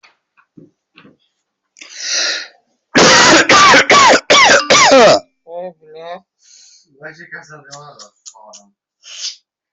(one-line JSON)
{"expert_labels": [{"quality": "good", "cough_type": "wet", "dyspnea": false, "wheezing": false, "stridor": false, "choking": false, "congestion": false, "nothing": true, "diagnosis": "lower respiratory tract infection", "severity": "mild"}], "age": 39, "gender": "male", "respiratory_condition": false, "fever_muscle_pain": false, "status": "symptomatic"}